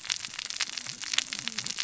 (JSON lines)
{"label": "biophony, cascading saw", "recorder": "SoundTrap 600 or HydroMoth"}